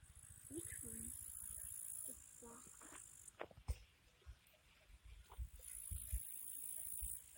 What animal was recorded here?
Tettigonia cantans, an orthopteran